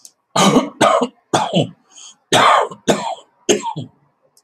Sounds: Cough